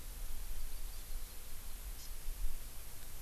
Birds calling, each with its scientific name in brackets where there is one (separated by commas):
Hawaii Amakihi (Chlorodrepanis virens)